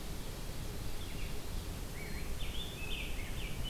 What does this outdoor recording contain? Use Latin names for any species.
Piranga olivacea